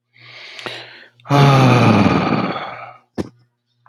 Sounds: Sigh